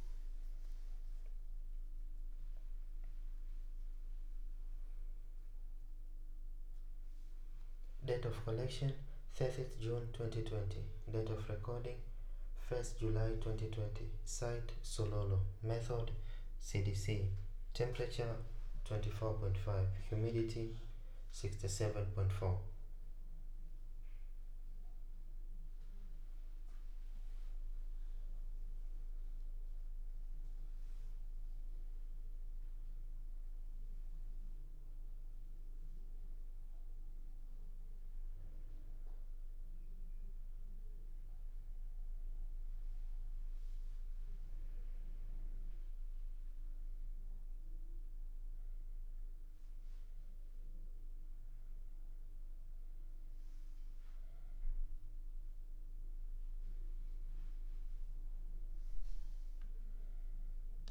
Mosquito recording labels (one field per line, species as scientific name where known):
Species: no mosquito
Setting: cup